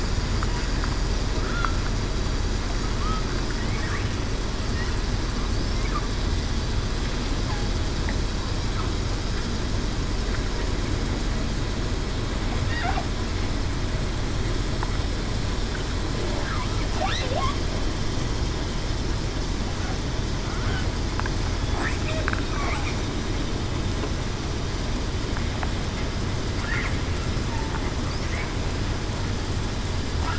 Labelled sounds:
1.4	1.8	killer whale, southern resident, 1.3 to 1.5 kHz

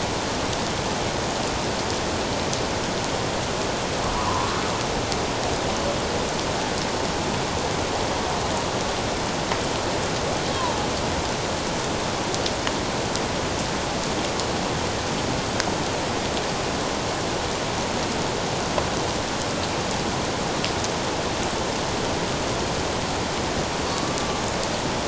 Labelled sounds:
4.2	4.6	killer whale, Bigg's (transient), 0.91 to 1.3 kHz
23.9	24.2	killer whale, Bigg's (transient), 1.1 to 1.2 kHz

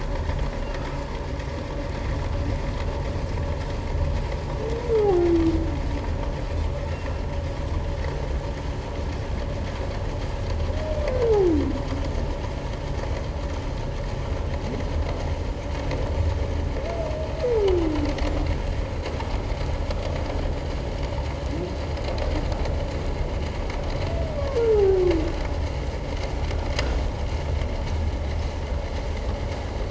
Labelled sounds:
0.6	1.0	humpback whale, 1.2 to 1.4 kHz
24.8	25.0	humpback whale, 0.78 to 0.88 kHz

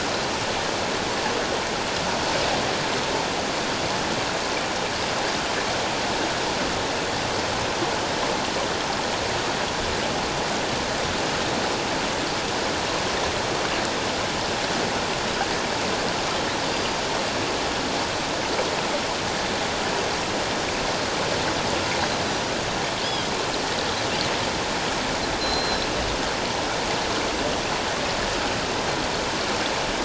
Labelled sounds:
23.0	23.3	Pacific white-sided dolphin, 3.1 to 3.4 kHz
25.4	25.9	Pacific white-sided dolphin, 4.0 to 5.5 kHz

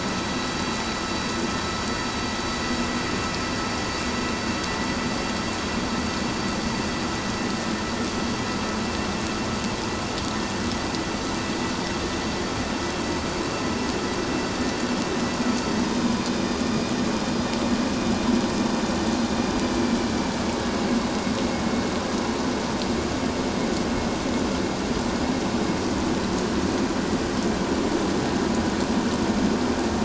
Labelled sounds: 16.0	16.2	vessel noise, 4.8 to 5.0 kHz

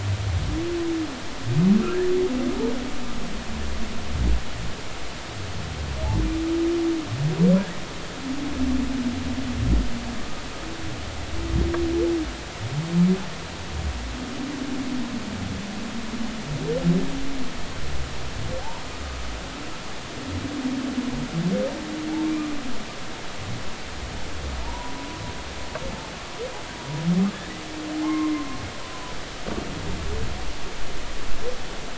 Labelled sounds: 24.6	25.0	humpback whale, 0.83 to 1.0 kHz
28.0	28.4	humpback whale, 0.99 to 2.2 kHz

